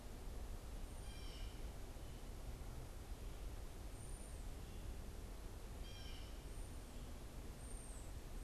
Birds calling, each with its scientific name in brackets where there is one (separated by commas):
Blue Jay (Cyanocitta cristata), unidentified bird